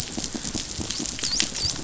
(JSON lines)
{"label": "biophony, dolphin", "recorder": "SoundTrap 500"}